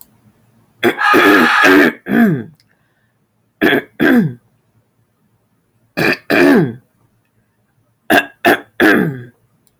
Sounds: Throat clearing